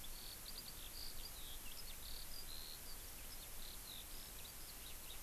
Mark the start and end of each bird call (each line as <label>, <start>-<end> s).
Eurasian Skylark (Alauda arvensis), 0.0-5.2 s